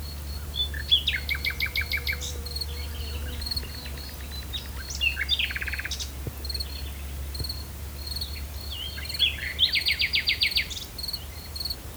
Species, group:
Gryllus campestris
Orthoptera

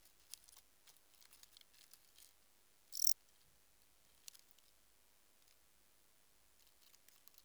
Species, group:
Melanogryllus desertus
Orthoptera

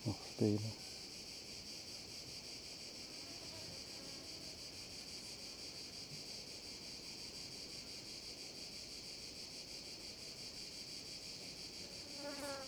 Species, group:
Chorthippus mollis
Orthoptera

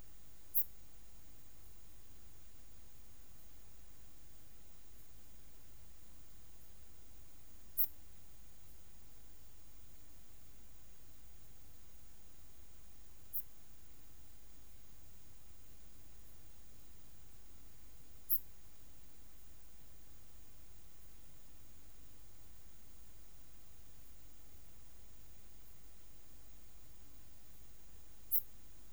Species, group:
Steropleurus andalusius
Orthoptera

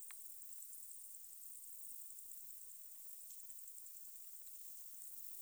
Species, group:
Tettigonia viridissima
Orthoptera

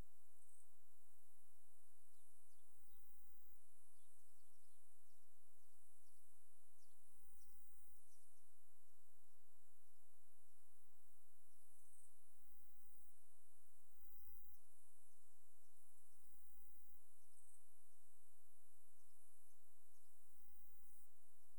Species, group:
Saga hellenica
Orthoptera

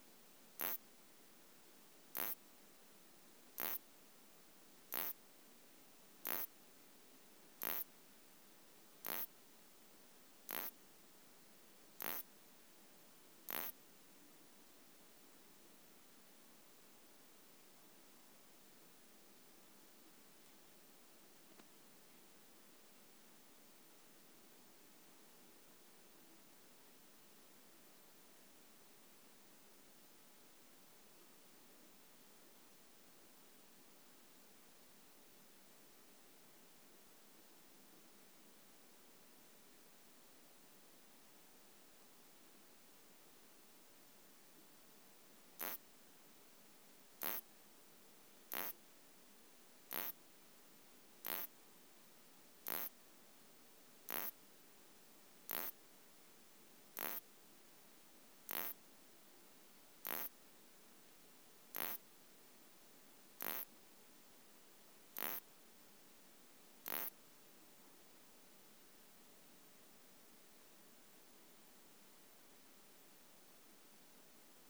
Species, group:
Isophya clara
Orthoptera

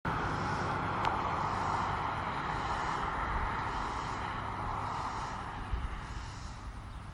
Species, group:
Neotibicen robinsonianus
Cicadidae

